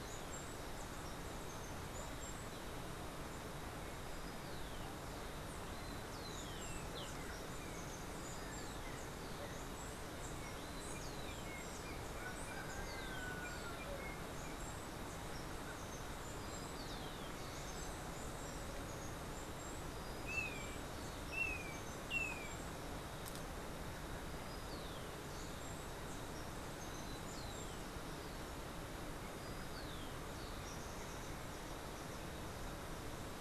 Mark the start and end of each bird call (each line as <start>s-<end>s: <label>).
0.0s-2.5s: Steely-vented Hummingbird (Saucerottia saucerottei)
5.7s-23.1s: Steely-vented Hummingbird (Saucerottia saucerottei)
10.0s-14.8s: Yellow-backed Oriole (Icterus chrysater)
20.1s-22.7s: Golden-faced Tyrannulet (Zimmerius chrysops)
24.3s-30.8s: Rufous-collared Sparrow (Zonotrichia capensis)